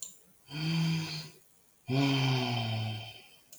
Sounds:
Sigh